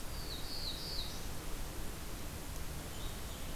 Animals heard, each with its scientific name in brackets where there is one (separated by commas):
Black-throated Blue Warbler (Setophaga caerulescens)